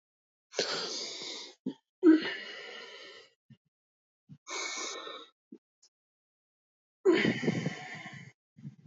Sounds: Sigh